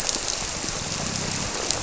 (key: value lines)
label: biophony
recorder: SoundTrap 300